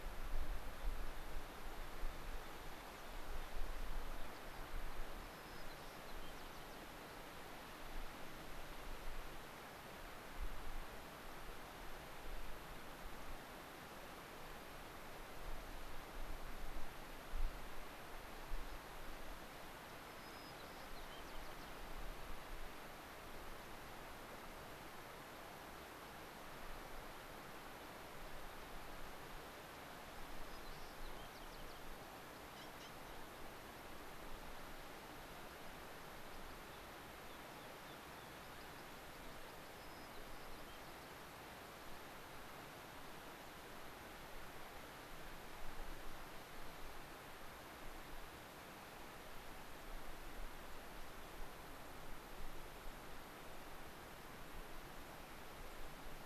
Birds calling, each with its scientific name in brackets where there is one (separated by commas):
White-crowned Sparrow (Zonotrichia leucophrys), Rock Wren (Salpinctes obsoletus), American Pipit (Anthus rubescens)